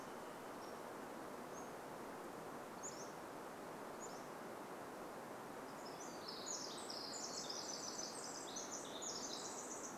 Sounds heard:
Pacific-slope Flycatcher song
Varied Thrush song
Pacific Wren song

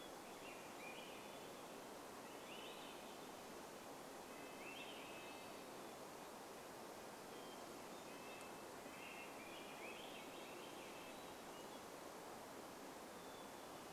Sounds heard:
Hermit Thrush song
Red-breasted Nuthatch song
Swainson's Thrush song

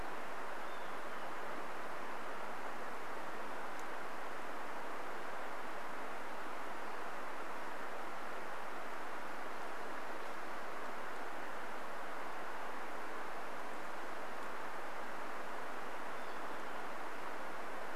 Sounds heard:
Olive-sided Flycatcher song

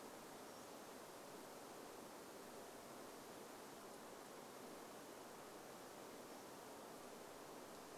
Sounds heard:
Pacific-slope Flycatcher call

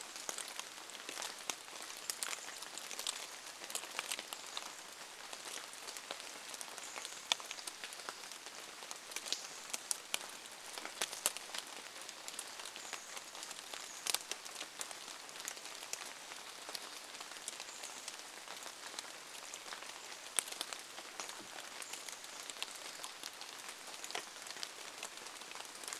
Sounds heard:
Chestnut-backed Chickadee call
rain
Brown Creeper call

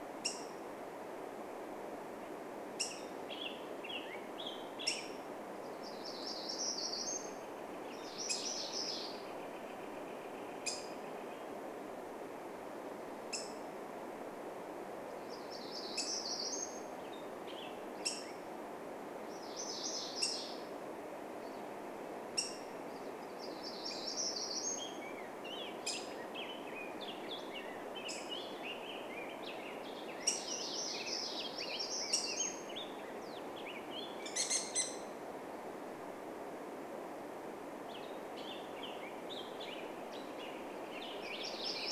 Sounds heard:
Black-headed Grosbeak call
Hermit Warbler song
unidentified sound
MacGillivray's Warbler song
Black-headed Grosbeak song
Northern Flicker call

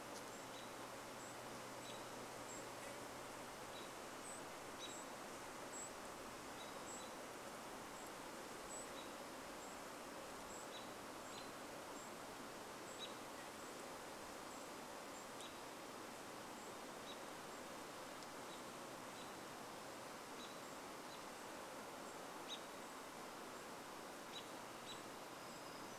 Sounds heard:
Golden-crowned Kinglet call
warbler song
American Robin call
insect buzz

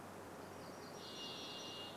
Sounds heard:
MacGillivray's Warbler song

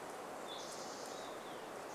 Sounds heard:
Spotted Towhee song
Olive-sided Flycatcher song

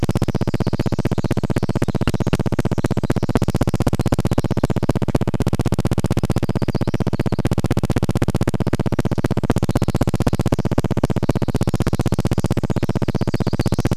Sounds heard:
Pacific Wren song
Red-breasted Nuthatch song
recorder noise

